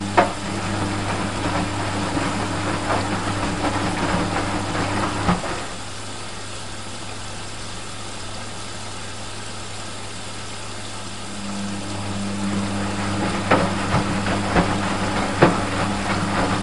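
0.0s A washing machine drum slowly turns with laundry inside. 5.8s
5.7s Steady sound of water rushing in a washing machine. 11.3s
11.3s A washing machine drum slowly turns with laundry inside. 16.6s

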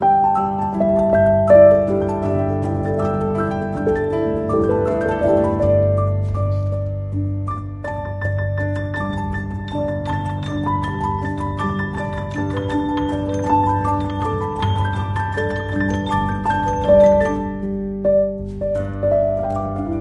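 0.0s An upbeat, rhythmic piano plays clearly indoors. 20.0s

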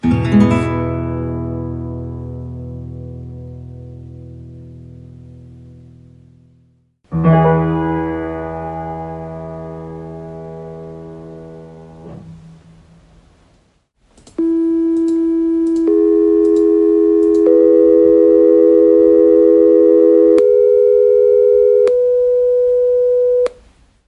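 0.0s An acoustic guitar plays a major chord once. 7.1s
7.1s A piano plays a major chord once. 12.0s
14.1s A computer mouse clicks distinctly and rhythmically. 17.5s
14.3s A major chord triad sounds digitally. 23.5s

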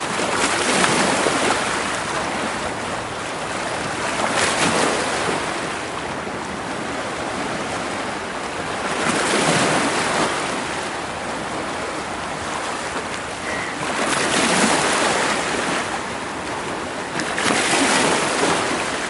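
0.0s Water splashing. 2.2s
0.0s Water flowing. 19.1s
4.0s Water splashing. 5.7s
8.6s Water splashing. 10.7s
13.3s A horn sounds. 13.8s
13.7s Water splashing. 16.1s
17.0s Water splashing. 19.1s

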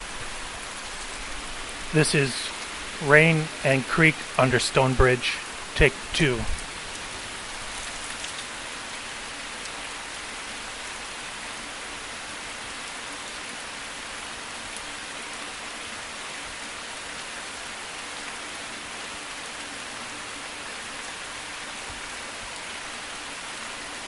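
0.1s Water flowing gently with light rain falling, creating a calm and atmospheric backdrop. 24.1s

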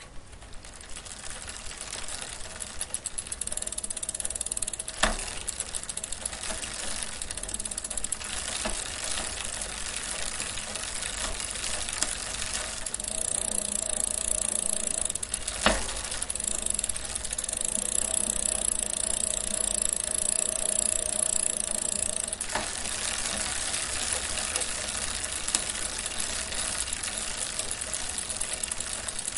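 0.0s Intermittent rhythmic pedaling sounds with occasional mechanical clicks of a bicycle. 29.4s
1.4s Bicycle wheels spinning continuously indoors. 29.4s

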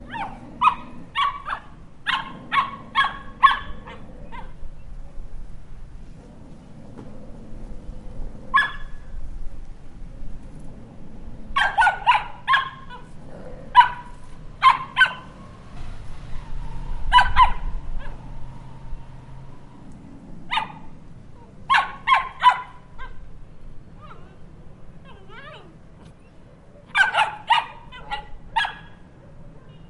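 0.0s Repeated high-pitched small dog barks that gradually turn into whining. 4.7s
0.0s A steady, distant, low zooming sound of a plane flying overhead. 29.9s
8.4s A single high-pitched bark from a small dog. 9.0s
11.4s Repeated high-pitched barks from a small dog. 15.5s
13.3s A dog growls. 13.7s
17.1s Two repeated high-pitched barks from a small dog. 17.7s
18.0s A dog whines quietly. 18.4s
20.4s A single high-pitched bark from a small dog. 20.9s
21.6s Repeated high-pitched barks from a small dog. 22.9s
23.0s A dog is whining. 26.1s
26.9s Repeated high-pitched barks from a small dog. 28.9s
29.2s A dog barks in the distance. 29.9s
29.7s A car horn sounds. 29.9s

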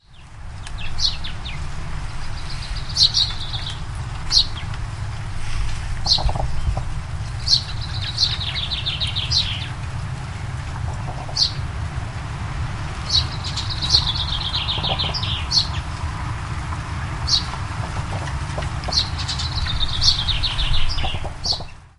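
0.0s Outdoor ambience with leaves blowing in the wind and the muffled sound of cars passing on a distant road. 22.0s
0.6s Birds twittering multiple tones in the distance outdoors. 1.6s
1.0s A bird chirps in the distance outdoors. 1.2s
1.9s Birds twitter repeatedly in the distance outdoors. 4.0s
2.9s A bird chirps twice in the distance outdoors. 3.3s
4.3s A bird chirps in the distance outdoors. 4.5s
5.8s Rubbery car wheels driving repeatedly over a gap in the distance. 7.0s
6.0s A bird chirps in the distance outdoors. 6.3s
7.3s Birds twitter repeatedly in the distance outdoors. 9.8s
7.5s A bird chirps in the distance outdoors. 7.6s
8.2s A bird chirps in the distance outdoors. 8.3s
9.3s A bird chirps in the distance outdoors. 9.5s
10.7s Rubbery car wheels driving repeatedly over a gap in the distance. 11.5s
11.3s A bird chirps in the distance outdoors. 11.5s
13.0s Birds twitter repeatedly in the distance outdoors. 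15.9s
13.1s A bird chirps in the distance outdoors. 13.3s
13.9s A bird chirps in the distance outdoors. 14.0s
14.7s Rubbery car wheels driving repeatedly over a gap in the distance. 15.2s
15.5s A bird chirps in the distance outdoors. 15.7s
17.3s A bird chirps in the distance outdoors. 17.4s
17.8s Rubbery car wheels driving repeatedly over a gap in the distance. 19.0s
18.9s A bird chirps in the distance outdoors. 19.1s
19.2s A squirrel chattering in the distance outdoors. 19.6s
20.0s A bird chirps in the distance outdoors. 20.2s
21.0s Rubbery car wheels driving repeatedly over a gap in the distance. 21.7s
21.4s A bird chirps in the distance outdoors. 21.6s

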